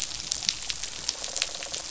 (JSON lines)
{"label": "biophony, rattle response", "recorder": "SoundTrap 500"}